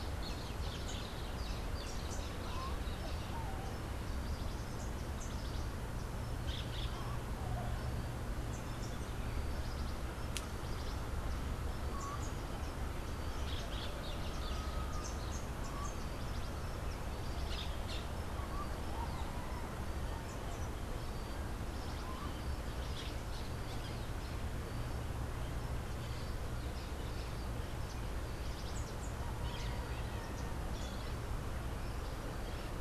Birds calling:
Social Flycatcher (Myiozetetes similis), Orange-fronted Parakeet (Eupsittula canicularis)

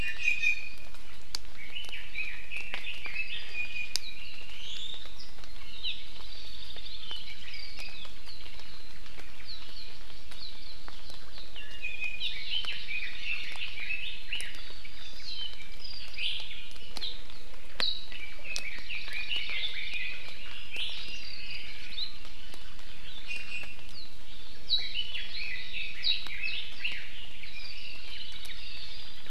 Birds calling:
Warbling White-eye (Zosterops japonicus), Apapane (Himatione sanguinea), Hawaii Amakihi (Chlorodrepanis virens), Iiwi (Drepanis coccinea), Red-billed Leiothrix (Leiothrix lutea), Hawaii Creeper (Loxops mana)

